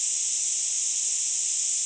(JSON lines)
{"label": "ambient", "recorder": "HydroMoth"}